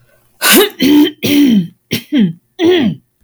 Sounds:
Throat clearing